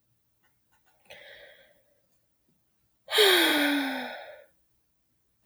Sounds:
Sigh